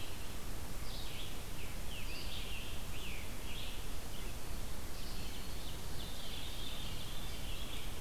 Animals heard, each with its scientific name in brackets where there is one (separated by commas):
Veery (Catharus fuscescens), Scarlet Tanager (Piranga olivacea), Red-eyed Vireo (Vireo olivaceus), Ovenbird (Seiurus aurocapilla)